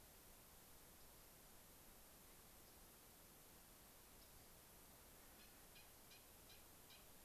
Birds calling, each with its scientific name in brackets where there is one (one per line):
Rock Wren (Salpinctes obsoletus)